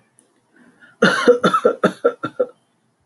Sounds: Cough